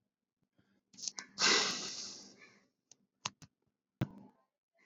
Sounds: Sigh